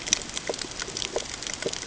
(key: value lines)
label: ambient
recorder: HydroMoth